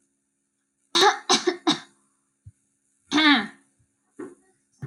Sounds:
Throat clearing